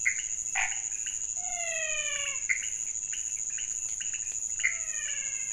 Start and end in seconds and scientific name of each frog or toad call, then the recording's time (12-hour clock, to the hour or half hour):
0.0	5.5	Leptodactylus podicipinus
1.3	2.8	Physalaemus albonotatus
4.6	5.5	Physalaemus albonotatus
~1am